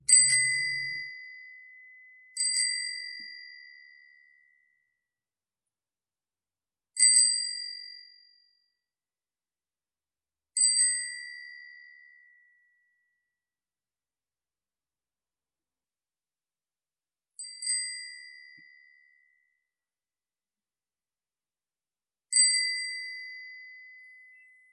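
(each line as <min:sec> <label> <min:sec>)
0:00.0 A bicycle bell rings twice loudly, the sounds fading into each other. 0:05.2
0:06.9 A bicycle bell rings loudly once and fades out. 0:08.9
0:10.5 A bicycle bell rings loudly once and fades away. 0:13.5
0:17.4 A bicycle bell rings loudly once and fades away. 0:19.7
0:22.2 A bicycle bell rings loudly once, fading out. 0:24.7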